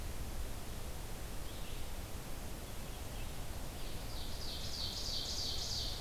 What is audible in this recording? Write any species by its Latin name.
Vireo olivaceus, Seiurus aurocapilla